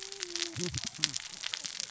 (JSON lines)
{"label": "biophony, cascading saw", "recorder": "SoundTrap 600 or HydroMoth"}